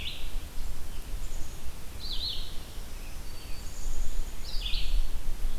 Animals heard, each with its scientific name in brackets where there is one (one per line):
Red-eyed Vireo (Vireo olivaceus)
Black-capped Chickadee (Poecile atricapillus)